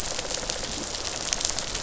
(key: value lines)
label: biophony, rattle response
recorder: SoundTrap 500